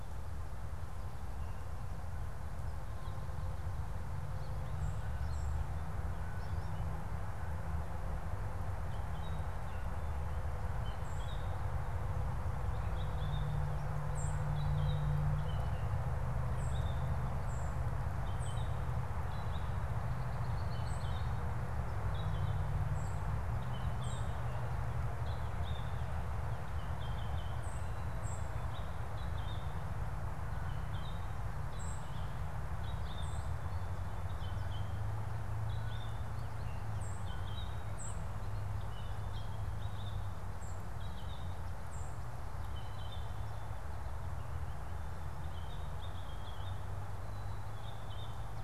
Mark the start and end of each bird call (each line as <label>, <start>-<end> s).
American Goldfinch (Spinus tristis), 2.7-6.9 s
White-throated Sparrow (Zonotrichia albicollis), 4.7-5.6 s
Purple Finch (Haemorhous purpureus), 8.9-40.4 s
White-throated Sparrow (Zonotrichia albicollis), 13.9-40.9 s
Purple Finch (Haemorhous purpureus), 40.9-48.6 s
White-throated Sparrow (Zonotrichia albicollis), 41.7-42.3 s